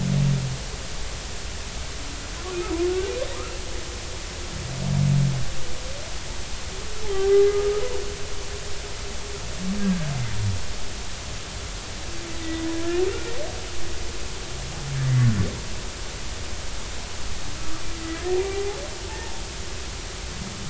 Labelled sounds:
7.3	7.6	humpback whale, 2.0 to 2.1 kHz
12.4	12.7	humpback whale, 1.9 to 2.0 kHz
13.1	13.3	humpback whale, 1.3 to 1.5 kHz
18.0	18.8	humpback whale, 0.80 to 2.1 kHz
19.1	19.4	humpback whale, 0.83 to 0.96 kHz

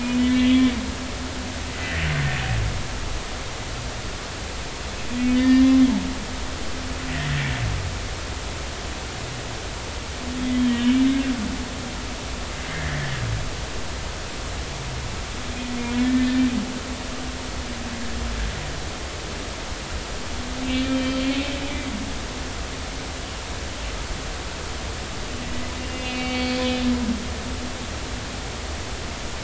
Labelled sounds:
0.2	0.4	humpback whale, 3.2 to 3.3 kHz
5.3	5.8	humpback whale, 1.7 to 5.1 kHz
10.7	11.0	humpback whale, 2.8 to 3.1 kHz
12.7	13.2	humpback whale, 1.6 to 2.2 kHz
15.9	16.3	humpback whale, 1.7 to 1.9 kHz
20.7	21.9	humpback whale, 2.0 to 3.2 kHz
25.8	27.2	humpback whale, 2.2 to 4.6 kHz

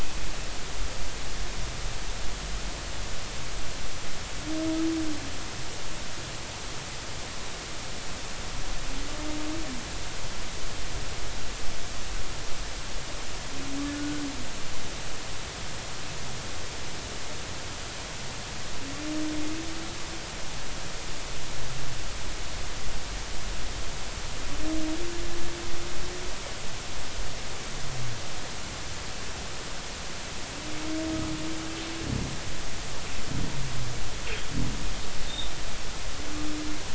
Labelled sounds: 13.9	14.2	humpback whale, 1.4 to 1.5 kHz
35.3	35.5	humpback whale, 3.4 to 3.8 kHz

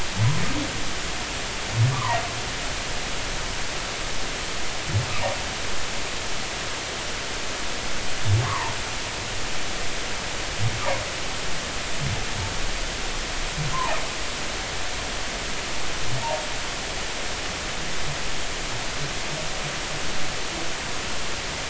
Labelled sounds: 1.9	2.2	humpback whale, 0.86 to 1.3 kHz
8.4	8.8	humpback whale, 0.83 to 1.3 kHz
13.7	14.0	humpback whale, 0.80 to 1.1 kHz

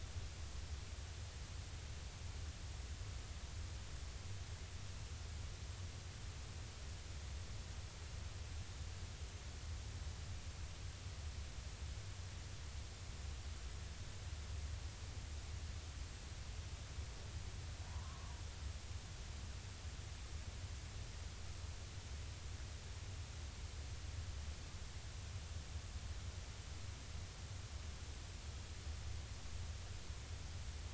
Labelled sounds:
17.9	18.3	humpback whale, 0.86 to 1.2 kHz

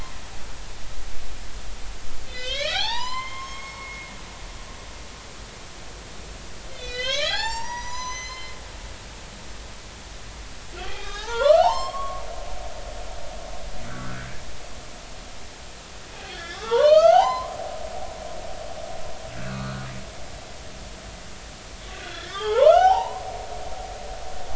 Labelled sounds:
2.2	4.1	humpback whale, 0.80 to 7.3 kHz
6.7	8.5	humpback whale, 0.80 to 8.0 kHz
10.8	12.5	humpback whale, 0.80 to 7.6 kHz
13.9	14.4	humpback whale, 1.3 to 1.8 kHz
16.2	17.5	humpback whale, 0.80 to 6.4 kHz
19.4	19.8	humpback whale, 1.1 to 2.7 kHz
21.9	23.2	humpback whale, 0.80 to 5.5 kHz

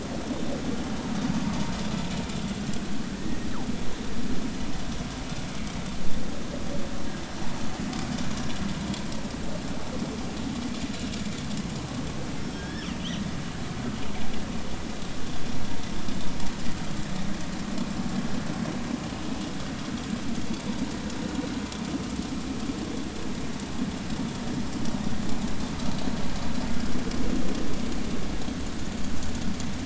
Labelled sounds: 3.1	3.5	killer whale, northern resident, G clan, GG subclan, call N28, 1.7 to 2.0 kHz
12.6	13.0	killer whale, northern resident, G clan, GG subclan, call N29, 1.5 to 3.6 kHz

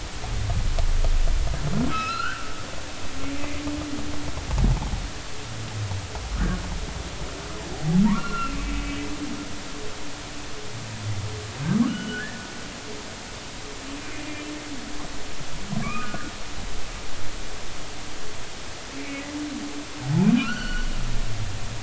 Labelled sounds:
1.9	2.5	humpback whale, 1.2 to 4.3 kHz
3.3	3.6	humpback whale, 2.0 to 2.2 kHz
6.4	6.6	humpback whale, 1.4 to 1.9 kHz
8.0	8.9	humpback whale, 0.86 to 2.8 kHz
11.9	12.4	humpback whale, 1.4 to 3.0 kHz
14.1	14.5	humpback whale, 2.3 to 2.5 kHz
15.8	16.3	humpback whale, 1.1 to 1.7 kHz
20.4	21.8	humpback whale, 1.2 to 4.5 kHz

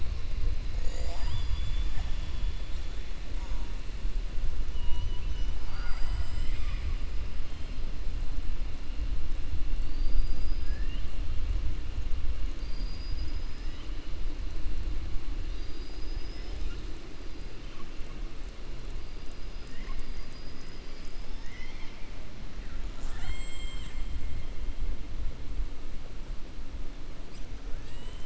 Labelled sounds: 4.7	7.0	killer whale, 0.66 to 6.0 kHz
9.7	11.1	killer whale, 1.2 to 5.3 kHz
22.8	24.0	killer whale, 0.68 to 7.9 kHz

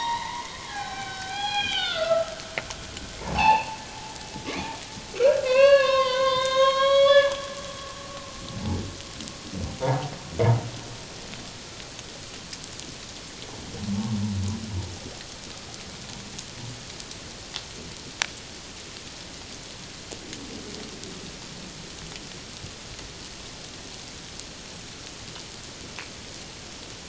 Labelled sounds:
1.3	2.2	humpback whale, 2.2 to 5.1 kHz
3.2	3.8	humpback whale, 0.78 to 3.1 kHz
5.1	7.3	humpback whale, 0.94 to 6.5 kHz
9.8	10.1	humpback whale, 0.78 to 1.0 kHz

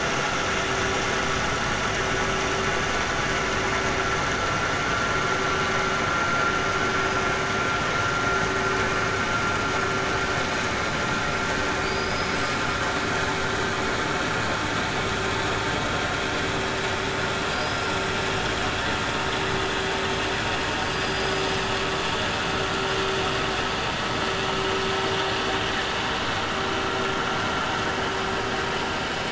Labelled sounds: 11.8	12.6	killer whale, 4.2 to 5.4 kHz
20.8	21.6	killer whale, 4.0 to 5.6 kHz

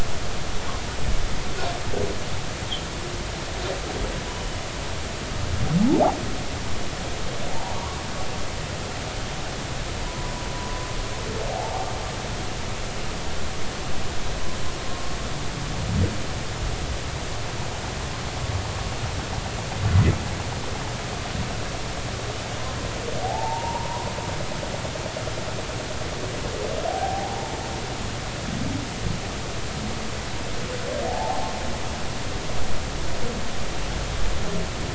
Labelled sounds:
5.8	6.2	humpback whale, 0.80 to 0.99 kHz
7.5	8.0	humpback whale, 0.80 to 1.2 kHz
10.1	10.3	humpback whale, 0.93 to 1.1 kHz
11.5	11.9	humpback whale, 0.80 to 0.96 kHz
23.2	24.1	humpback whale, 0.80 to 1.1 kHz
26.9	27.5	humpback whale, 0.80 to 0.99 kHz
31.1	31.5	humpback whale, 0.80 to 0.93 kHz

